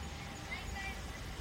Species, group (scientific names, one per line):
Ornebius kanetataki
Orthoptera